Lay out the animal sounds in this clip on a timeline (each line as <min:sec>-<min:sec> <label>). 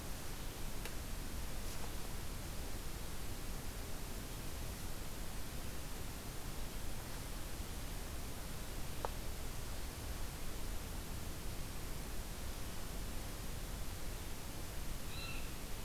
0:14.8-0:15.5 unidentified call